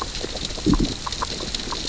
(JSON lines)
{"label": "biophony, grazing", "recorder": "SoundTrap 600 or HydroMoth"}